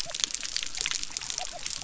{"label": "biophony", "recorder": "SoundTrap 300"}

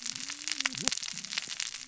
{"label": "biophony, cascading saw", "recorder": "SoundTrap 600 or HydroMoth"}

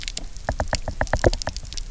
{"label": "biophony, knock", "recorder": "SoundTrap 300"}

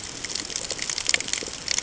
{"label": "ambient", "recorder": "HydroMoth"}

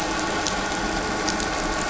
{"label": "anthrophony, boat engine", "recorder": "SoundTrap 500"}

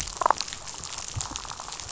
{"label": "biophony, damselfish", "recorder": "SoundTrap 500"}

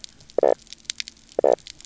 {"label": "biophony, knock croak", "recorder": "SoundTrap 300"}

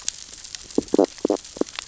{"label": "biophony, stridulation", "recorder": "SoundTrap 600 or HydroMoth"}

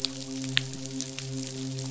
{"label": "biophony, midshipman", "recorder": "SoundTrap 500"}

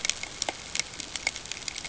{"label": "ambient", "recorder": "HydroMoth"}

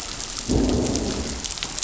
{"label": "biophony, growl", "recorder": "SoundTrap 500"}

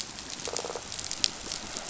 {"label": "biophony", "recorder": "SoundTrap 500"}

